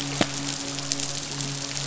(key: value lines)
label: biophony, midshipman
recorder: SoundTrap 500